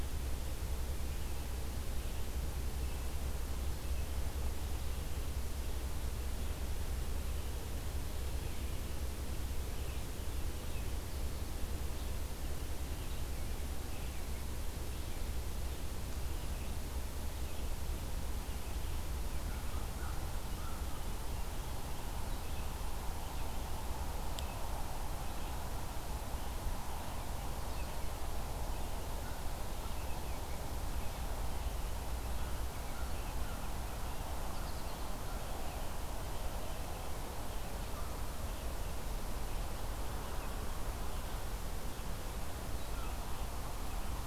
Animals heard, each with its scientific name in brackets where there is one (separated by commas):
American Crow (Corvus brachyrhynchos), Red-eyed Vireo (Vireo olivaceus), American Goldfinch (Spinus tristis)